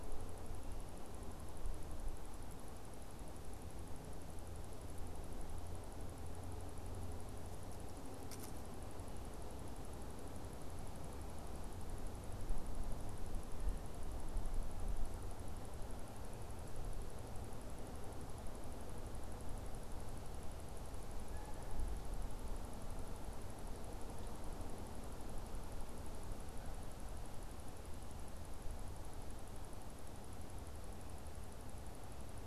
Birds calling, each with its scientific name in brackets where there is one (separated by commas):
Canada Goose (Branta canadensis)